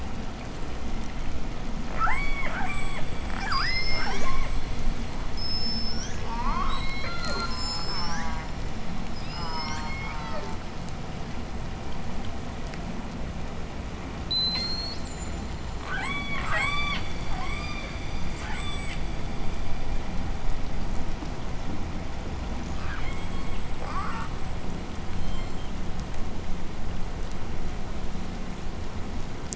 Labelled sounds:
1.8	3.1	killer whale, southern resident, J pod, 0.35 to 8.0 kHz
3.1	4.8	killer whale, southern resident, J pod, call S02i, 0.24 to 8.0 kHz
5.2	10.3	killer whale, southern resident, J pod, 0.46 to 8.0 kHz
7.2	8.7	killer whale, southern resident, J pod, call S04, 0.29 to 2.7 kHz
9.1	11.0	killer whale, southern resident, J pod, call S04, 0.37 to 2.7 kHz
14.3	15.2	killer whale, southern resident, J pod, 1.7 to 8.0 kHz
15.8	19.5	killer whale, southern resident, J pod, 0.52 to 8.0 kHz
22.5	25.9	killer whale, southern resident, J pod, 0.44 to 8.0 kHz

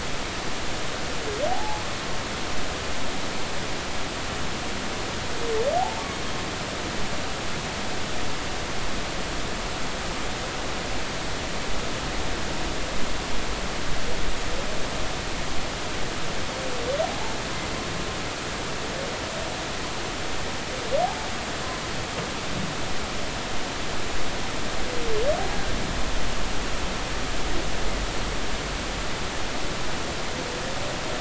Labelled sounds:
1.5	1.8	humpback whale, 0.80 to 0.99 kHz
5.8	6.1	humpback whale, 0.80 to 0.96 kHz

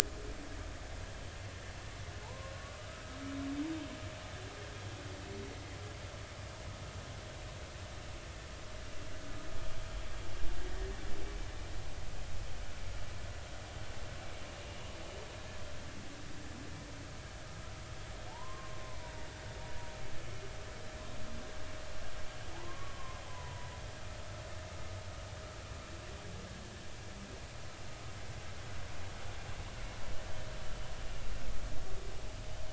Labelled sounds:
2.2	3.2	humpback whale, 0.83 to 1.3 kHz
18.3	19.1	humpback whale, 0.80 to 1.2 kHz
22.5	23.7	humpback whale, 0.80 to 1.2 kHz

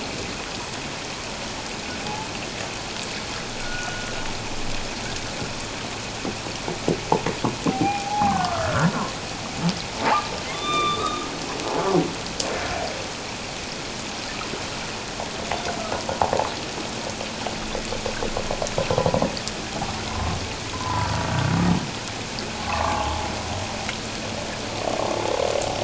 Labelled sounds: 2.0	2.3	humpback whale, 0.78 to 0.91 kHz
3.6	4.1	humpback whale, 1.4 to 1.5 kHz
7.7	8.9	humpback whale, 0.78 to 2.5 kHz
10.0	11.3	humpback whale, 0.78 to 6.1 kHz
20.1	20.4	humpback whale, 0.97 to 1.1 kHz
20.7	21.2	humpback whale, 0.88 to 1.1 kHz
22.6	23.2	humpback whale, 0.78 to 1.2 kHz

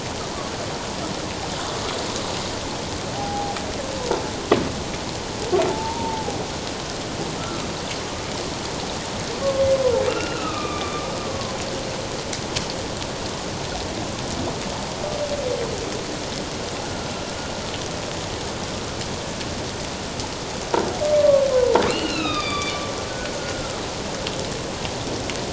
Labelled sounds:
3.1	3.6	humpback whale, 0.78 to 0.88 kHz
5.7	6.4	humpback whale, 0.78 to 0.97 kHz
7.4	7.7	humpback whale, 1.2 to 1.4 kHz
10.1	11.6	humpback whale, 0.97 to 2.9 kHz
21.9	22.8	humpback whale, 1.1 to 5.3 kHz
23.4	23.8	humpback whale, 1.2 to 1.5 kHz

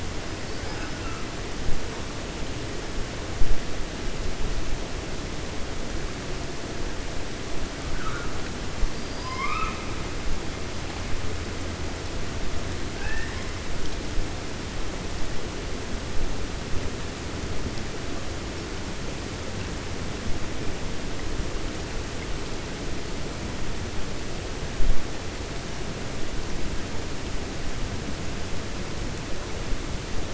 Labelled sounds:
0.6	1.2	killer whale, 0.77 to 2.6 kHz
8.9	9.8	killer whale, 0.99 to 5.2 kHz
12.9	13.5	killer whale, 0.82 to 2.8 kHz

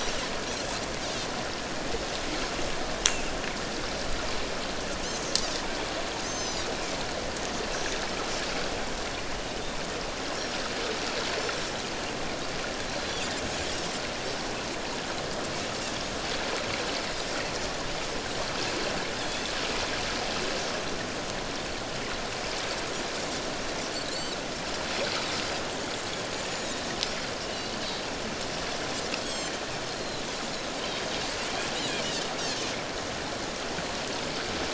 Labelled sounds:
6.2	6.7	Pacific white-sided dolphin, 4.7 to 7.3 kHz
12.9	13.2	Pacific white-sided dolphin, 4.0 to 4.1 kHz
19.2	19.5	Pacific white-sided dolphin, 3.3 to 3.7 kHz
25.4	25.7	Pacific white-sided dolphin, 4.7 to 5.0 kHz
27.4	27.7	Pacific white-sided dolphin, 2.8 to 3.0 kHz
29.2	30.2	Pacific white-sided dolphin, 3.1 to 7.8 kHz
32.4	32.6	Pacific white-sided dolphin, 5.3 to 5.8 kHz

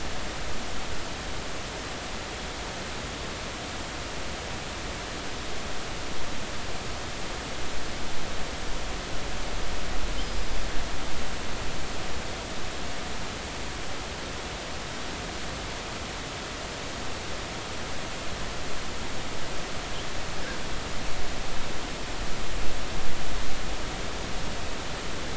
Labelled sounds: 10.2	10.6	killer whale, northern resident, 4.9 to 5.2 kHz

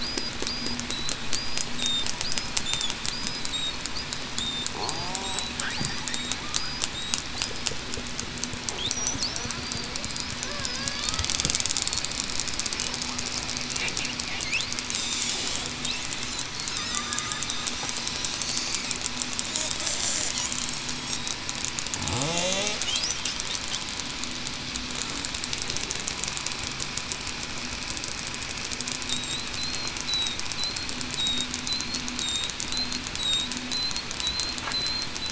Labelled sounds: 4.9	5.4	killer whale, southern resident, 0.66 to 0.80 kHz
16.9	17.3	killer whale, southern resident, 1.1 to 1.3 kHz
22.4	22.8	killer whale, southern resident, 0.52 to 0.66 kHz
29.6	29.9	killer whale, southern resident, 4.0 to 4.3 kHz
34.2	35.1	killer whale, southern resident, 3.9 to 4.3 kHz

